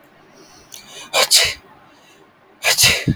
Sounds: Sneeze